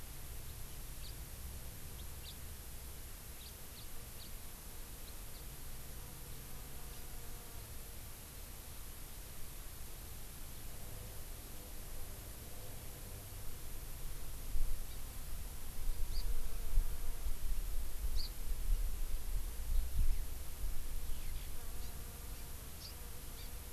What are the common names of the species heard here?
House Finch, Hawaii Amakihi, Eurasian Skylark